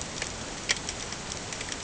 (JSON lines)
{"label": "ambient", "recorder": "HydroMoth"}